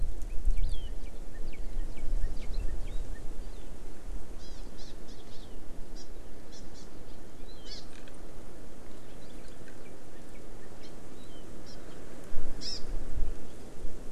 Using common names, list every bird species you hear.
Hawaii Amakihi, Northern Cardinal